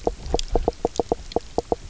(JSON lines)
{"label": "biophony, knock croak", "recorder": "SoundTrap 300"}